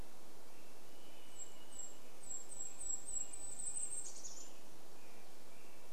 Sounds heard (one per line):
Golden-crowned Kinglet song
Varied Thrush song
American Robin song